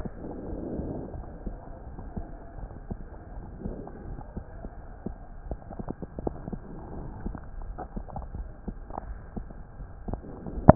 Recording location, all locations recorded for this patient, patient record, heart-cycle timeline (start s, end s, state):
aortic valve (AV)
aortic valve (AV)+pulmonary valve (PV)+tricuspid valve (TV)
#Age: Child
#Sex: Male
#Height: 130.0 cm
#Weight: 38.5 kg
#Pregnancy status: False
#Murmur: Absent
#Murmur locations: nan
#Most audible location: nan
#Systolic murmur timing: nan
#Systolic murmur shape: nan
#Systolic murmur grading: nan
#Systolic murmur pitch: nan
#Systolic murmur quality: nan
#Diastolic murmur timing: nan
#Diastolic murmur shape: nan
#Diastolic murmur grading: nan
#Diastolic murmur pitch: nan
#Diastolic murmur quality: nan
#Outcome: Normal
#Campaign: 2015 screening campaign
0.00	0.46	unannotated
0.46	0.62	S1
0.62	0.72	systole
0.72	0.86	S2
0.86	1.14	diastole
1.14	1.26	S1
1.26	1.44	systole
1.44	1.58	S2
1.58	1.84	diastole
1.84	2.02	S1
2.02	2.18	systole
2.18	2.26	S2
2.26	2.58	diastole
2.58	2.68	S1
2.68	2.88	systole
2.88	2.98	S2
2.98	3.36	diastole
3.36	3.48	S1
3.48	3.64	systole
3.64	3.78	S2
3.78	4.08	diastole
4.08	4.18	S1
4.18	4.32	systole
4.32	4.42	S2
4.42	4.70	diastole
4.70	4.82	S1
4.82	5.00	systole
5.00	5.14	S2
5.14	5.46	diastole
5.46	5.58	S1
5.58	5.78	systole
5.78	5.88	S2
5.88	6.24	diastole
6.24	6.36	S1
6.36	6.48	systole
6.48	6.60	S2
6.60	6.94	diastole
6.94	7.10	S1
7.10	7.24	systole
7.24	7.36	S2
7.36	7.62	diastole
7.62	7.76	S1
7.76	7.96	systole
7.96	8.06	S2
8.06	8.34	diastole
8.34	8.50	S1
8.50	8.68	systole
8.68	8.78	S2
8.78	9.08	diastole
9.08	9.22	S1
9.22	9.38	systole
9.38	9.48	S2
9.48	9.82	diastole
9.82	9.90	S1
9.90	10.08	systole
10.08	10.20	S2
10.20	10.75	unannotated